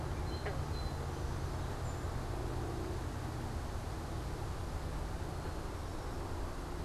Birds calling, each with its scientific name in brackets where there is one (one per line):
Song Sparrow (Melospiza melodia)
Eastern Towhee (Pipilo erythrophthalmus)